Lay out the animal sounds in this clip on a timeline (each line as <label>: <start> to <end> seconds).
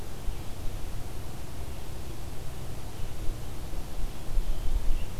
Red-eyed Vireo (Vireo olivaceus): 0.0 to 5.2 seconds